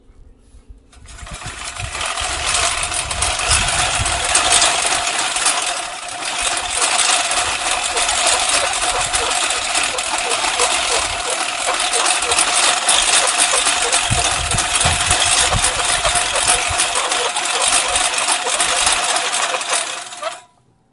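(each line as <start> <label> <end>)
0.6 A lawnmower engine running loudly and monotonously. 20.5
6.2 An engine makes a steady squeaking noise while a lawnmower operates. 20.5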